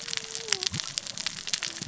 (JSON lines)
{"label": "biophony, cascading saw", "recorder": "SoundTrap 600 or HydroMoth"}